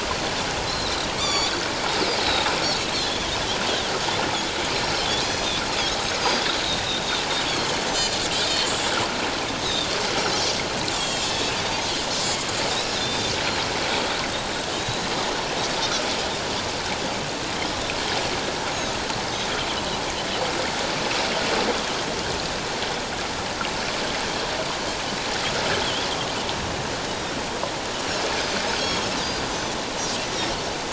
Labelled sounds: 0.7	1.5	Pacific white-sided dolphin, 1.1 to 7.2 kHz
3.0	3.3	Pacific white-sided dolphin, 3.2 to 3.7 kHz
5.2	5.5	Pacific white-sided dolphin, 5.8 to 6.2 kHz
7.9	8.6	Pacific white-sided dolphin, 3.3 to 4.3 kHz
9.6	9.9	Pacific white-sided dolphin, 3.3 to 4.0 kHz
10.9	11.4	Pacific white-sided dolphin, 2.5 to 7.8 kHz
12.7	13.3	Pacific white-sided dolphin, 3.4 to 4.2 kHz
14.7	15.0	Pacific white-sided dolphin, 3.7 to 4.0 kHz
19.2	19.5	Pacific white-sided dolphin, 6.1 to 6.4 kHz
25.8	26.1	Pacific white-sided dolphin, 2.9 to 3.5 kHz
27.0	27.3	Pacific white-sided dolphin, 3.5 to 3.9 kHz
29.2	29.7	Pacific white-sided dolphin, 4.6 to 6.3 kHz

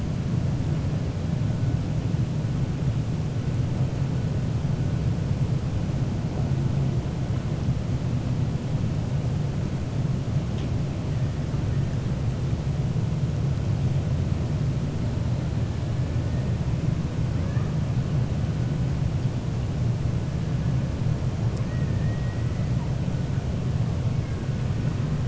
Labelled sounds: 21.6	22.6	killer whale, 1.3 to 2.5 kHz

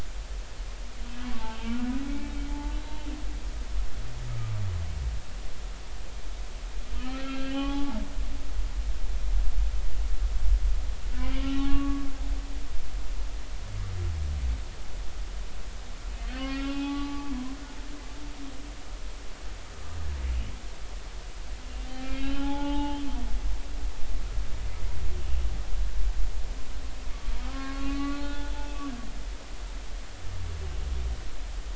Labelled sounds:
1.6	3.0	humpback whale, 0.80 to 4.0 kHz
7.0	8.0	humpback whale, 0.80 to 3.3 kHz
11.2	12.1	humpback whale, 1.1 to 3.1 kHz
16.3	17.3	humpback whale, 0.80 to 4.7 kHz
21.6	23.1	humpback whale, 0.80 to 3.5 kHz
27.4	28.5	humpback whale, 0.83 to 4.4 kHz

